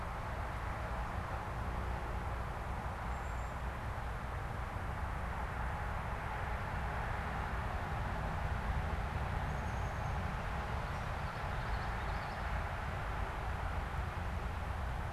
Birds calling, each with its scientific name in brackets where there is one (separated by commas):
Downy Woodpecker (Dryobates pubescens), Common Yellowthroat (Geothlypis trichas)